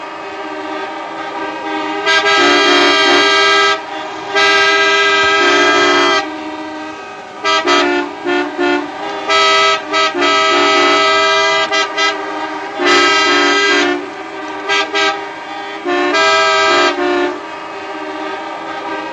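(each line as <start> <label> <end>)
0.0 Vehicles honk at different rhythmic intervals and distances during a celebration. 19.1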